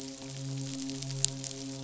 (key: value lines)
label: biophony, midshipman
recorder: SoundTrap 500